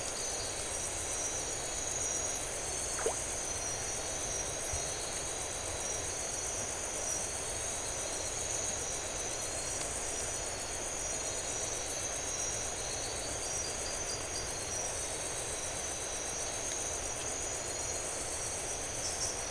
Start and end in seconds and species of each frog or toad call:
3.0	3.2	Leptodactylus flavopictus
1:00am

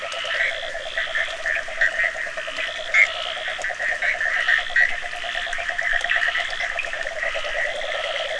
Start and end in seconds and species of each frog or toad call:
0.0	8.3	Boana bischoffi
0.0	8.3	Rhinella icterica
2.5	2.8	Leptodactylus latrans
12:45am

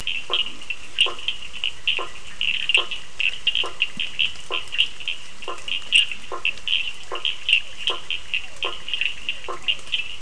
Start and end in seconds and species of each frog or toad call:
0.0	10.2	Sphaenorhynchus surdus
0.3	10.2	Boana faber
0.5	10.0	Boana bischoffi
8.3	10.2	Physalaemus cuvieri
8:30pm

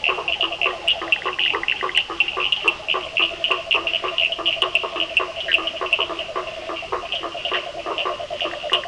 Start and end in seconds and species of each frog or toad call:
0.0	8.8	Boana faber
0.0	8.8	Sphaenorhynchus surdus
0.9	2.0	Boana bischoffi
5.4	5.6	Boana bischoffi
7:15pm

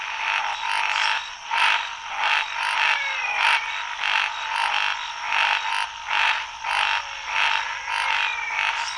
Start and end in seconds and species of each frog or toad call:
0.0	8.9	Scinax fuscovarius
0.8	1.3	Dendropsophus minutus
2.5	4.1	Physalaemus albonotatus
7.3	8.9	Physalaemus albonotatus
4:00am

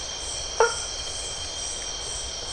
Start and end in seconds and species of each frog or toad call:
0.6	1.0	Boana faber
9:45pm

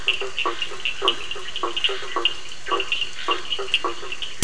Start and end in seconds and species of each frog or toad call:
0.0	4.2	Boana faber
0.0	4.2	Sphaenorhynchus surdus
0.0	4.4	Elachistocleis bicolor
0.0	4.4	Scinax perereca
9:00pm

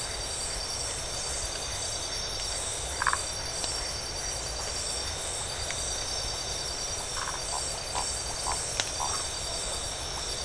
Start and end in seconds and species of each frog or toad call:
3.0	3.3	Phyllomedusa distincta
7.1	7.4	Phyllomedusa distincta
9.1	9.3	Phyllomedusa distincta
12:30am

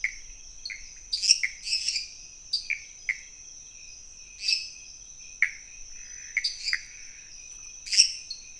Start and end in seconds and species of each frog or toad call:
0.0	8.5	Pithecopus azureus
1.0	2.3	Dendropsophus minutus
2.4	2.8	Dendropsophus nanus
4.4	4.8	Dendropsophus minutus
7.7	8.3	Dendropsophus minutus
11:15pm

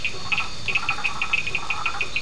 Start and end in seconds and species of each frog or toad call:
0.0	2.2	Boana faber
0.0	2.2	Elachistocleis bicolor
0.0	2.2	Sphaenorhynchus surdus
0.1	2.2	Boana prasina
11:15pm

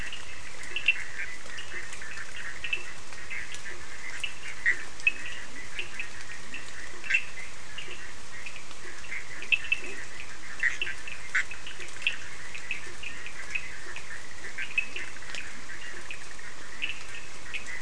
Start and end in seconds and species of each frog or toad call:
0.0	17.8	Boana bischoffi
0.0	17.8	Sphaenorhynchus surdus
0.6	16.4	Boana faber
4.7	6.9	Leptodactylus latrans
14.7	17.8	Leptodactylus latrans
10:30pm

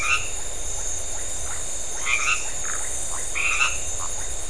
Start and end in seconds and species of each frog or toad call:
0.0	3.9	Boana albomarginata
0.0	4.4	Leptodactylus notoaktites
2.6	2.9	Phyllomedusa distincta
9:30pm

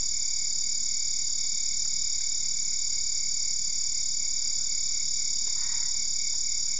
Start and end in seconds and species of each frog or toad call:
5.4	6.0	Boana albopunctata
3:00am

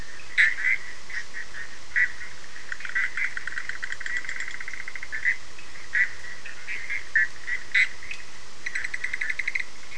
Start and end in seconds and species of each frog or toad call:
0.0	9.9	Boana bischoffi
6.4	6.5	Sphaenorhynchus surdus
4:00am

